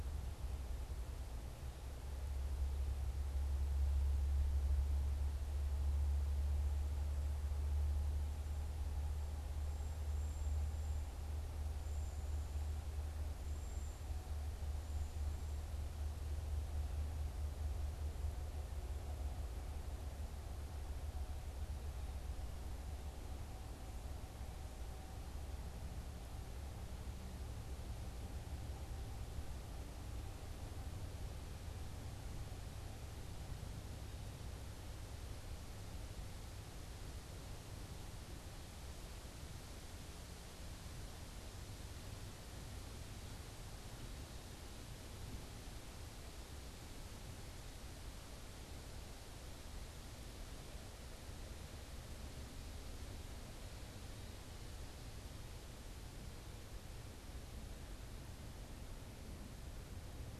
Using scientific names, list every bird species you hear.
Bombycilla cedrorum